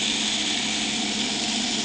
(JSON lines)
{"label": "anthrophony, boat engine", "recorder": "HydroMoth"}